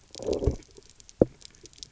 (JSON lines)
{"label": "biophony, low growl", "recorder": "SoundTrap 300"}